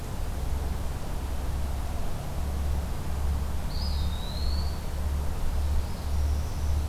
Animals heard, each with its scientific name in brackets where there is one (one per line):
Northern Parula (Setophaga americana)
Eastern Wood-Pewee (Contopus virens)